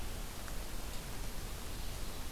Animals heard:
forest ambience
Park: Marsh-Billings-Rockefeller National Historical Park